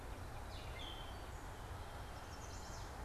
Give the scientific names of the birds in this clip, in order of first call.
Dumetella carolinensis, Setophaga pensylvanica